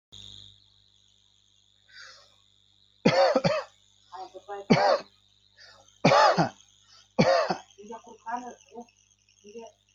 {"expert_labels": [{"quality": "good", "cough_type": "dry", "dyspnea": false, "wheezing": false, "stridor": false, "choking": false, "congestion": false, "nothing": true, "diagnosis": "upper respiratory tract infection", "severity": "mild"}], "gender": "female", "respiratory_condition": true, "fever_muscle_pain": false, "status": "symptomatic"}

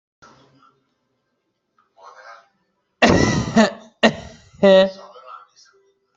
{"expert_labels": [{"quality": "ok", "cough_type": "dry", "dyspnea": false, "wheezing": false, "stridor": false, "choking": false, "congestion": false, "nothing": true, "diagnosis": "healthy cough", "severity": "pseudocough/healthy cough"}], "age": 30, "gender": "male", "respiratory_condition": false, "fever_muscle_pain": false, "status": "COVID-19"}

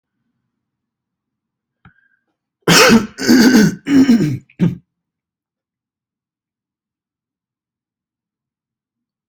{"expert_labels": [{"quality": "ok", "cough_type": "unknown", "dyspnea": false, "wheezing": false, "stridor": false, "choking": false, "congestion": false, "nothing": true, "diagnosis": "healthy cough", "severity": "pseudocough/healthy cough"}], "age": 26, "gender": "male", "respiratory_condition": false, "fever_muscle_pain": false, "status": "healthy"}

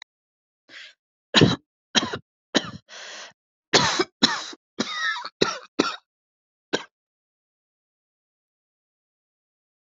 {"expert_labels": [{"quality": "good", "cough_type": "dry", "dyspnea": false, "wheezing": false, "stridor": false, "choking": false, "congestion": false, "nothing": true, "diagnosis": "lower respiratory tract infection", "severity": "mild"}], "age": 41, "gender": "female", "respiratory_condition": false, "fever_muscle_pain": false, "status": "healthy"}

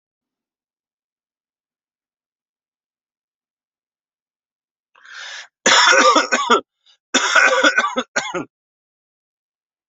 {"expert_labels": [{"quality": "good", "cough_type": "dry", "dyspnea": false, "wheezing": false, "stridor": false, "choking": false, "congestion": false, "nothing": true, "diagnosis": "COVID-19", "severity": "mild"}], "age": 54, "gender": "male", "respiratory_condition": false, "fever_muscle_pain": false, "status": "healthy"}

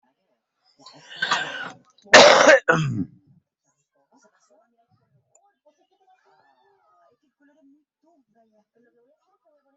{"expert_labels": [{"quality": "ok", "cough_type": "unknown", "dyspnea": false, "wheezing": false, "stridor": false, "choking": false, "congestion": false, "nothing": true, "diagnosis": "healthy cough", "severity": "pseudocough/healthy cough"}, {"quality": "good", "cough_type": "wet", "dyspnea": false, "wheezing": false, "stridor": false, "choking": false, "congestion": false, "nothing": true, "diagnosis": "lower respiratory tract infection", "severity": "mild"}, {"quality": "good", "cough_type": "wet", "dyspnea": false, "wheezing": false, "stridor": false, "choking": false, "congestion": false, "nothing": true, "diagnosis": "upper respiratory tract infection", "severity": "mild"}, {"quality": "good", "cough_type": "wet", "dyspnea": false, "wheezing": false, "stridor": false, "choking": false, "congestion": false, "nothing": true, "diagnosis": "lower respiratory tract infection", "severity": "mild"}], "age": 45, "gender": "male", "respiratory_condition": true, "fever_muscle_pain": false, "status": "COVID-19"}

